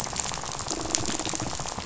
{"label": "biophony, rattle", "recorder": "SoundTrap 500"}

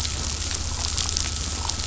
{"label": "anthrophony, boat engine", "recorder": "SoundTrap 500"}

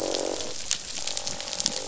{"label": "biophony, croak", "recorder": "SoundTrap 500"}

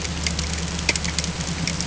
{"label": "ambient", "recorder": "HydroMoth"}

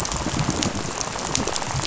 {"label": "biophony, rattle", "recorder": "SoundTrap 500"}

